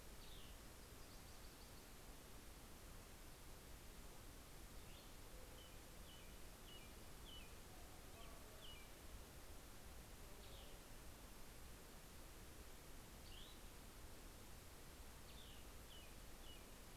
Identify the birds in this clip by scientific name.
Vireo cassinii, Setophaga coronata, Turdus migratorius